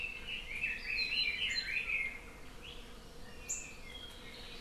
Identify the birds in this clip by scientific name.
Leiothrix lutea, Chlorodrepanis virens